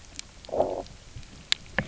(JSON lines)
{"label": "biophony, low growl", "recorder": "SoundTrap 300"}